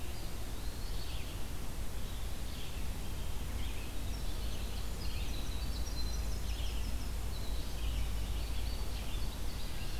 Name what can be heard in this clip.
Eastern Wood-Pewee, Red-eyed Vireo, Winter Wren, Indigo Bunting